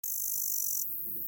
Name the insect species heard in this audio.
Tettigonia cantans